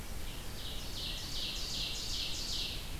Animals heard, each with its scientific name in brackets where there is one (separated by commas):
Ovenbird (Seiurus aurocapilla)